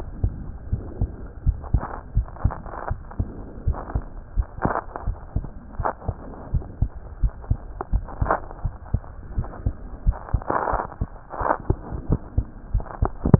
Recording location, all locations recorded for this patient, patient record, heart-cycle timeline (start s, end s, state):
aortic valve (AV)
aortic valve (AV)+pulmonary valve (PV)+tricuspid valve (TV)+mitral valve (MV)
#Age: Child
#Sex: Male
#Height: 98.0 cm
#Weight: 15.1 kg
#Pregnancy status: False
#Murmur: Absent
#Murmur locations: nan
#Most audible location: nan
#Systolic murmur timing: nan
#Systolic murmur shape: nan
#Systolic murmur grading: nan
#Systolic murmur pitch: nan
#Systolic murmur quality: nan
#Diastolic murmur timing: nan
#Diastolic murmur shape: nan
#Diastolic murmur grading: nan
#Diastolic murmur pitch: nan
#Diastolic murmur quality: nan
#Outcome: Abnormal
#Campaign: 2015 screening campaign
0.00	0.68	unannotated
0.68	0.82	S1
0.82	1.00	systole
1.00	1.12	S2
1.12	1.44	diastole
1.44	1.60	S1
1.60	1.72	systole
1.72	1.82	S2
1.82	2.14	diastole
2.14	2.28	S1
2.28	2.40	systole
2.40	2.56	S2
2.56	2.88	diastole
2.88	3.00	S1
3.00	3.18	systole
3.18	3.30	S2
3.30	3.64	diastole
3.64	3.80	S1
3.80	3.94	systole
3.94	4.06	S2
4.06	4.34	diastole
4.34	4.46	S1
4.46	4.62	systole
4.62	4.72	S2
4.72	5.06	diastole
5.06	5.18	S1
5.18	5.32	systole
5.32	5.45	S2
5.45	5.75	diastole
5.75	5.86	S1
5.86	6.04	systole
6.04	6.16	S2
6.16	6.50	diastole
6.50	6.64	S1
6.64	6.78	systole
6.78	6.90	S2
6.90	7.20	diastole
7.20	7.32	S1
7.32	7.48	systole
7.48	7.60	S2
7.60	7.92	diastole
7.92	8.06	S1
8.06	8.20	systole
8.20	8.36	S2
8.36	8.62	diastole
8.62	8.74	S1
8.74	8.90	systole
8.90	9.02	S2
9.02	9.34	diastole
9.34	9.50	S1
9.50	9.64	systole
9.64	9.74	S2
9.74	10.04	diastole
10.04	10.18	S1
10.18	10.30	systole
10.30	10.42	S2
10.42	10.70	diastole
10.70	10.84	S1
10.84	10.98	systole
10.98	11.08	S2
11.08	11.36	diastole
11.36	11.50	S1
11.50	11.66	systole
11.66	11.78	S2
11.78	12.08	diastole
12.08	12.20	S1
12.20	12.34	systole
12.34	12.46	S2
12.46	12.72	diastole
12.72	12.84	S1
12.84	13.39	unannotated